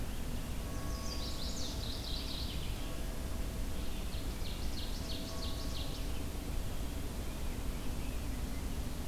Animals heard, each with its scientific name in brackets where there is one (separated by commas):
Mourning Warbler (Geothlypis philadelphia), Chestnut-sided Warbler (Setophaga pensylvanica), Ovenbird (Seiurus aurocapilla)